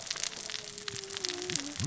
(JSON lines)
{"label": "biophony, cascading saw", "recorder": "SoundTrap 600 or HydroMoth"}